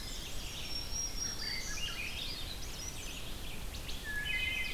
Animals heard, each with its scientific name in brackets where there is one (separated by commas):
Red-eyed Vireo (Vireo olivaceus), Ovenbird (Seiurus aurocapilla), Rose-breasted Grosbeak (Pheucticus ludovicianus), Black-throated Green Warbler (Setophaga virens), Swainson's Thrush (Catharus ustulatus), Wood Thrush (Hylocichla mustelina)